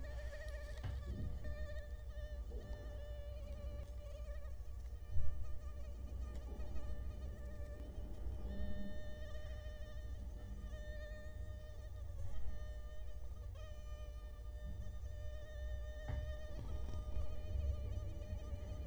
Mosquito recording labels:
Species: Culex quinquefasciatus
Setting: cup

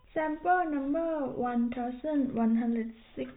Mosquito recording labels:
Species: no mosquito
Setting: cup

